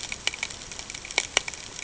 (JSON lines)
{"label": "ambient", "recorder": "HydroMoth"}